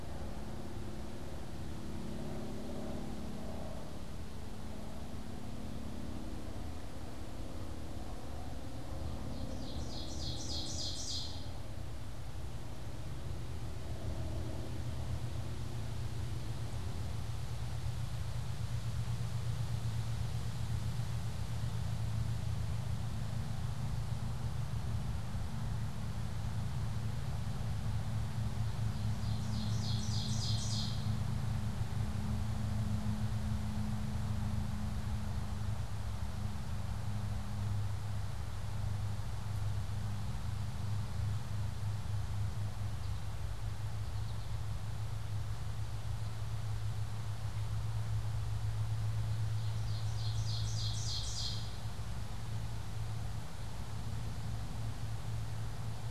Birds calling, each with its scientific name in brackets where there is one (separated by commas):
American Goldfinch (Spinus tristis), Ovenbird (Seiurus aurocapilla)